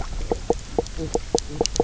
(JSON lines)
{"label": "biophony, knock croak", "recorder": "SoundTrap 300"}